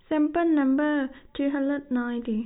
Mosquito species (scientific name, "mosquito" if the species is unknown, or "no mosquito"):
no mosquito